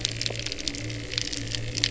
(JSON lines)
{"label": "anthrophony, boat engine", "recorder": "SoundTrap 300"}